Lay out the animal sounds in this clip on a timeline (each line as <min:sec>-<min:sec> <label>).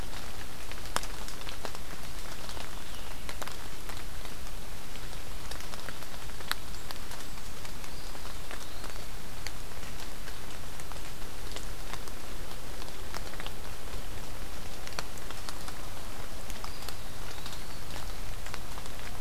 0:02.3-0:03.3 Veery (Catharus fuscescens)
0:07.7-0:09.1 Eastern Wood-Pewee (Contopus virens)
0:16.4-0:17.9 Eastern Wood-Pewee (Contopus virens)